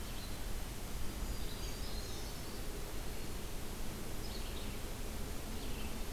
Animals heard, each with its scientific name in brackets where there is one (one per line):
Black-throated Green Warbler (Setophaga virens)
Brown Creeper (Certhia americana)
Red-eyed Vireo (Vireo olivaceus)